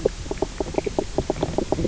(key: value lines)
label: biophony, knock croak
recorder: SoundTrap 300